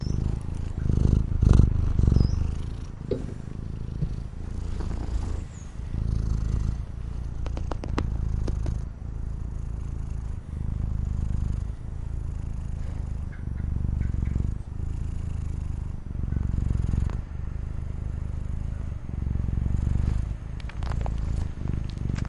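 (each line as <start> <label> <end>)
0.1 A cat is purring. 22.3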